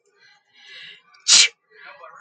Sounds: Sneeze